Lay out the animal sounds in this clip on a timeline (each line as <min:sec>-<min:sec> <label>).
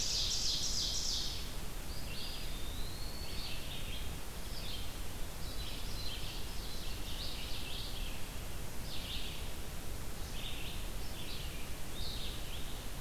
0:00.0-0:01.4 Ovenbird (Seiurus aurocapilla)
0:00.0-0:13.0 Red-eyed Vireo (Vireo olivaceus)
0:01.7-0:03.6 Eastern Wood-Pewee (Contopus virens)
0:05.5-0:07.5 Ovenbird (Seiurus aurocapilla)